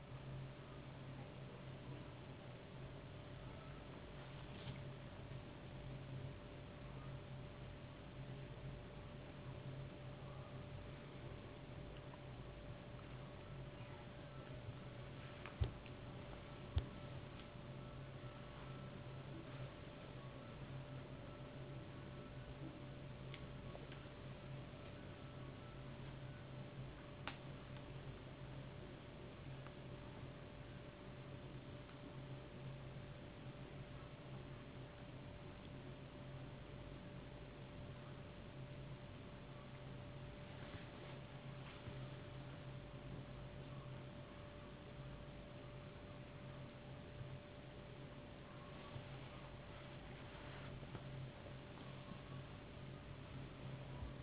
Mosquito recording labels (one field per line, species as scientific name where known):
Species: no mosquito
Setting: insect culture